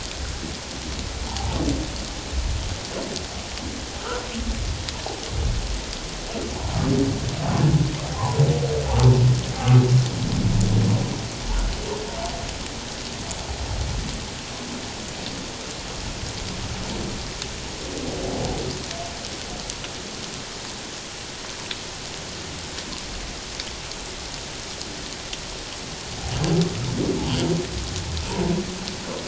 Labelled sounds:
1.3	1.6	humpback whale, 0.78 to 1.0 kHz
4.0	4.3	humpback whale, 1.2 to 1.6 kHz
8.2	8.4	humpback whale, 0.78 to 1.1 kHz
9.6	9.8	humpback whale, 1.1 to 1.3 kHz

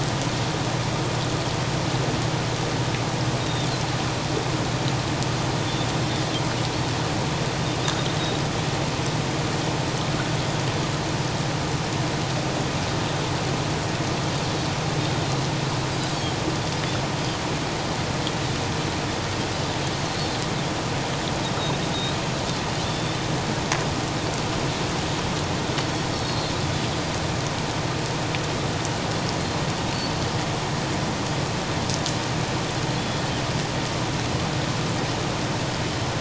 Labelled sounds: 3.4	3.7	Pacific white-sided dolphin, 3.4 to 3.8 kHz
26.1	26.5	Pacific white-sided dolphin, 4.0 to 4.5 kHz
33.0	33.2	Pacific white-sided dolphin, 3.3 to 3.5 kHz

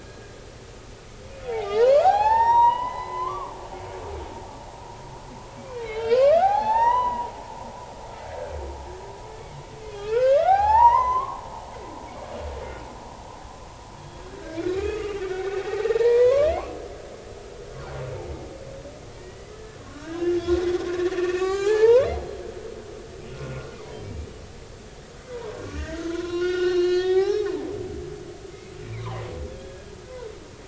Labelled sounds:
0.1	0.3	humpback whale, 1.6 to 1.8 kHz
1.4	4.3	humpback whale, 0.80 to 5.8 kHz
5.6	7.3	humpback whale, 0.80 to 6.0 kHz
8.3	8.5	humpback whale, 1.4 to 1.8 kHz
9.9	12.0	humpback whale, 0.80 to 6.2 kHz
14.0	16.6	humpback whale, 0.86 to 3.4 kHz
19.2	20.4	humpback whale, 1.0 to 2.1 kHz
20.8	22.1	humpback whale, 0.80 to 7.3 kHz
25.3	27.7	humpback whale, 0.80 to 6.0 kHz
28.8	29.9	humpback whale, 0.80 to 2.5 kHz

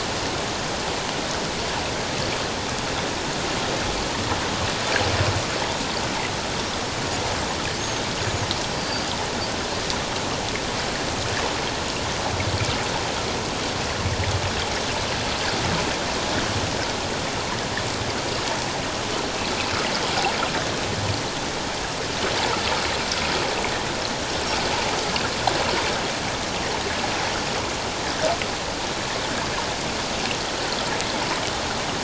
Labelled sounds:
7.8	8.5	Pacific white-sided dolphin, 6.2 to 6.9 kHz
8.8	9.1	Pacific white-sided dolphin, 4.6 to 4.8 kHz

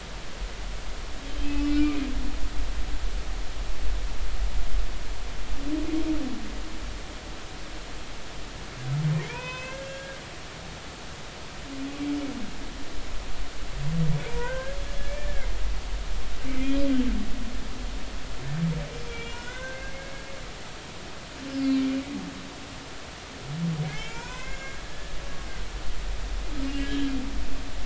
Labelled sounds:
1.4	2.0	humpback whale, 2.2 to 2.7 kHz
9.2	10.7	humpback whale, 0.86 to 6.2 kHz
14.3	15.5	humpback whale, 0.90 to 1.8 kHz
16.6	16.9	humpback whale, 2.3 to 2.6 kHz
19.1	20.2	humpback whale, 1.4 to 3.4 kHz
23.9	24.8	humpback whale, 0.90 to 6.8 kHz
26.8	27.1	humpback whale, 1.6 to 3.3 kHz

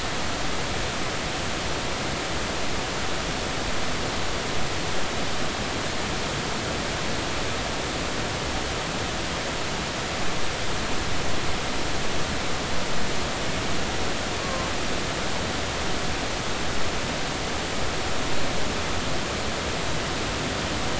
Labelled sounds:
14.4	14.7	killer whale, Bigg's (transient), 0.99 to 1.2 kHz

